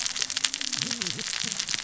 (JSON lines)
{"label": "biophony, cascading saw", "recorder": "SoundTrap 600 or HydroMoth"}